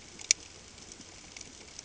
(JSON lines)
{"label": "ambient", "recorder": "HydroMoth"}